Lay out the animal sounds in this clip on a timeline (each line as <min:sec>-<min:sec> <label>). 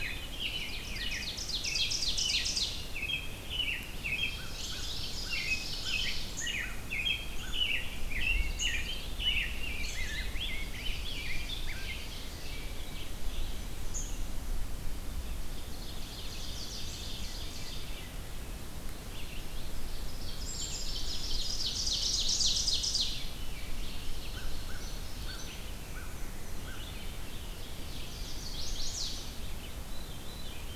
0:00.0-0:04.9 American Robin (Turdus migratorius)
0:00.3-0:03.0 Ovenbird (Seiurus aurocapilla)
0:04.2-0:06.6 Ovenbird (Seiurus aurocapilla)
0:04.2-0:08.2 American Crow (Corvus brachyrhynchos)
0:05.2-0:09.9 American Robin (Turdus migratorius)
0:09.9-0:12.0 Rose-breasted Grosbeak (Pheucticus ludovicianus)
0:10.4-0:11.5 Chestnut-sided Warbler (Setophaga pensylvanica)
0:10.5-0:12.7 Ovenbird (Seiurus aurocapilla)
0:12.2-0:13.6 American Robin (Turdus migratorius)
0:13.9-0:24.1 Red-eyed Vireo (Vireo olivaceus)
0:15.5-0:16.9 Chestnut-sided Warbler (Setophaga pensylvanica)
0:15.5-0:18.3 Ovenbird (Seiurus aurocapilla)
0:19.6-0:23.4 Ovenbird (Seiurus aurocapilla)
0:20.2-0:20.9 Black-capped Chickadee (Poecile atricapillus)
0:22.7-0:23.7 Veery (Catharus fuscescens)
0:23.8-0:25.8 Ovenbird (Seiurus aurocapilla)
0:24.2-0:27.6 American Crow (Corvus brachyrhynchos)
0:26.6-0:29.8 Red-eyed Vireo (Vireo olivaceus)
0:27.0-0:28.5 Ovenbird (Seiurus aurocapilla)
0:27.8-0:29.5 Chestnut-sided Warbler (Setophaga pensylvanica)
0:29.7-0:30.8 Veery (Catharus fuscescens)
0:30.1-0:30.8 Rose-breasted Grosbeak (Pheucticus ludovicianus)